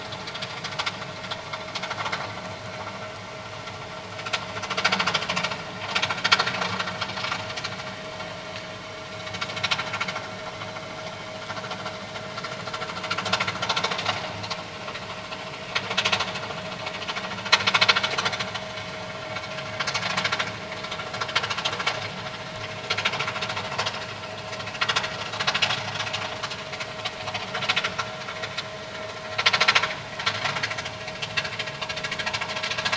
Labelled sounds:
30.9	31.1	vessel noise, 2.6 to 2.9 kHz

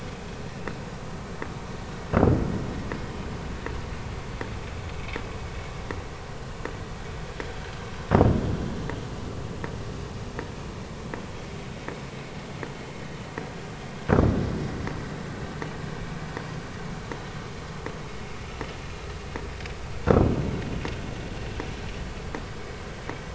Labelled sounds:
0.5	0.8	vessel noise, 2.6 to 2.8 kHz

